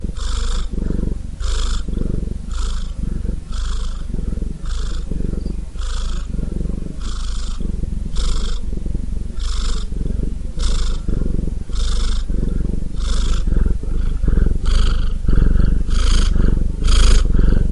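A cat purrs with alternating high and low pitches. 0:00.0 - 0:17.7

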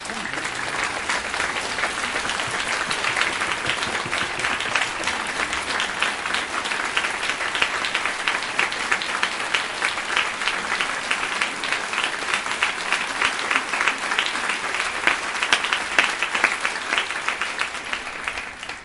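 Echoing rhythmic applause indoors. 0:00.0 - 0:18.8

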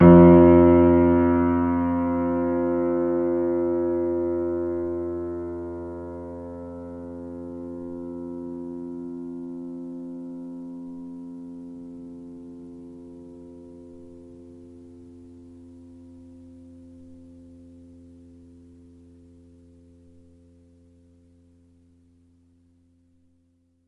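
A piano note is played once and then slowly fades away. 0:00.0 - 0:23.9

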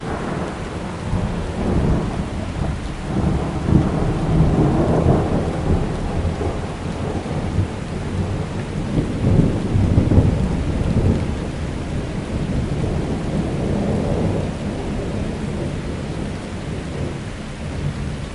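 A steady, heavy downpour of rain. 0:00.0 - 0:18.3
Thunder rumbles loudly and continuously. 0:01.7 - 0:11.5
Thunder rumbling continuously and gradually fading. 0:12.5 - 0:18.3

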